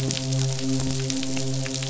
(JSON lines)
{"label": "biophony, midshipman", "recorder": "SoundTrap 500"}